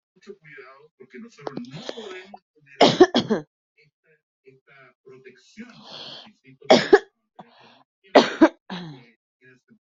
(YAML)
expert_labels:
- quality: ok
  cough_type: unknown
  dyspnea: false
  wheezing: false
  stridor: false
  choking: false
  congestion: false
  nothing: true
  diagnosis: healthy cough
  severity: pseudocough/healthy cough
age: 28
gender: female
respiratory_condition: false
fever_muscle_pain: false
status: healthy